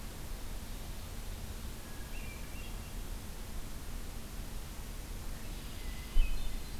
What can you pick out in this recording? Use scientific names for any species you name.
Catharus guttatus, Agelaius phoeniceus